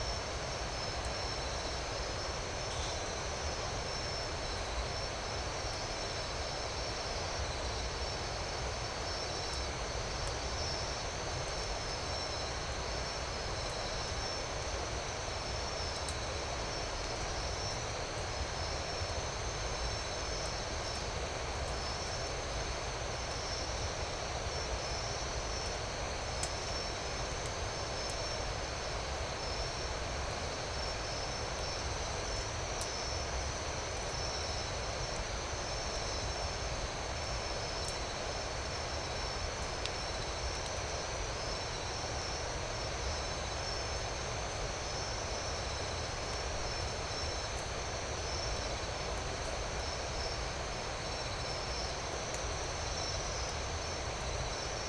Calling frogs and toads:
none
~2am

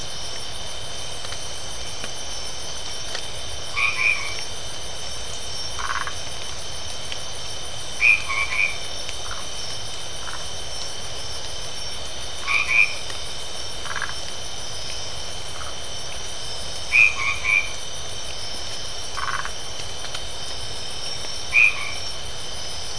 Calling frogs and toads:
white-edged tree frog (Boana albomarginata), Phyllomedusa distincta
10:30pm

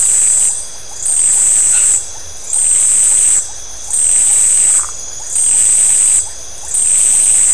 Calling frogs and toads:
Iporanga white-lipped frog (Leptodactylus notoaktites), white-edged tree frog (Boana albomarginata), Phyllomedusa distincta
10:30pm

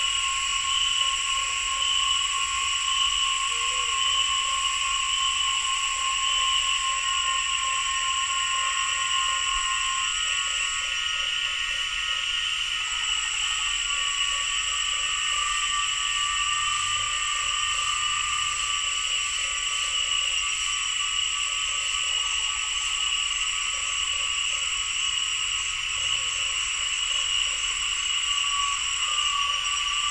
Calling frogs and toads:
Usina tree frog (Boana lundii)
6:30pm

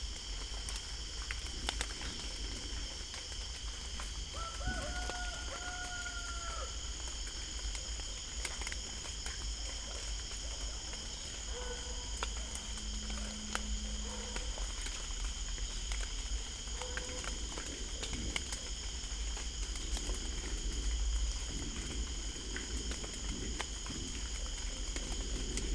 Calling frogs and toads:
Dendropsophus cruzi
6pm

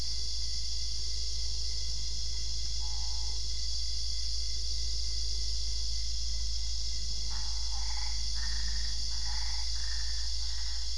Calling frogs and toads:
Boana albopunctata
midnight

